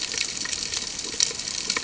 {"label": "ambient", "recorder": "HydroMoth"}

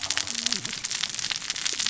{"label": "biophony, cascading saw", "recorder": "SoundTrap 600 or HydroMoth"}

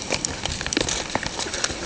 {"label": "ambient", "recorder": "HydroMoth"}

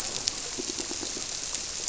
{"label": "biophony, squirrelfish (Holocentrus)", "recorder": "SoundTrap 300"}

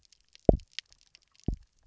{"label": "biophony, double pulse", "recorder": "SoundTrap 300"}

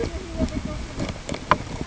{"label": "ambient", "recorder": "HydroMoth"}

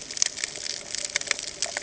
{"label": "ambient", "recorder": "HydroMoth"}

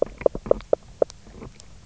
{"label": "biophony, knock croak", "recorder": "SoundTrap 300"}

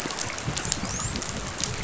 {"label": "biophony, dolphin", "recorder": "SoundTrap 500"}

